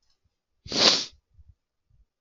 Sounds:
Sniff